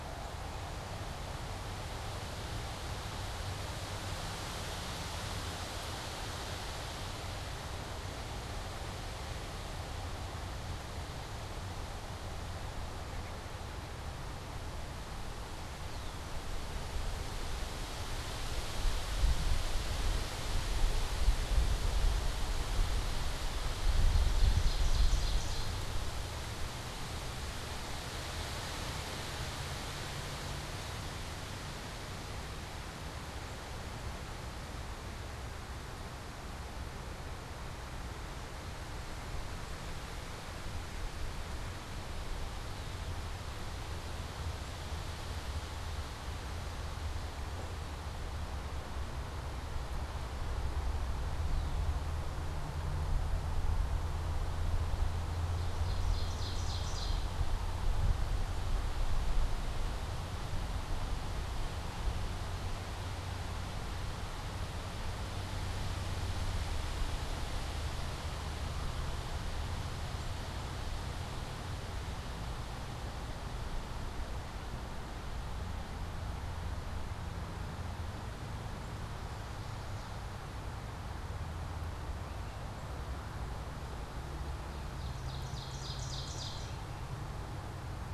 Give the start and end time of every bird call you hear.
15.7s-16.4s: Red-winged Blackbird (Agelaius phoeniceus)
24.0s-25.9s: Ovenbird (Seiurus aurocapilla)
51.4s-52.0s: Red-winged Blackbird (Agelaius phoeniceus)
55.2s-57.4s: Ovenbird (Seiurus aurocapilla)
84.5s-87.1s: Ovenbird (Seiurus aurocapilla)

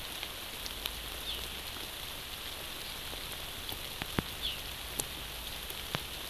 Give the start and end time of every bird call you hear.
1.2s-1.4s: Hawaii Amakihi (Chlorodrepanis virens)
4.4s-4.6s: Hawaii Amakihi (Chlorodrepanis virens)

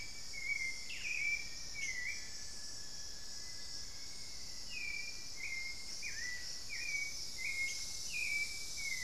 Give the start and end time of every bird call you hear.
0.0s-4.0s: Rufous-fronted Antthrush (Formicarius rufifrons)
0.0s-9.0s: Hauxwell's Thrush (Turdus hauxwelli)
0.0s-9.0s: unidentified bird
3.2s-5.6s: Black-faced Antthrush (Formicarius analis)

